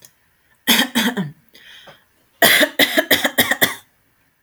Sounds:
Throat clearing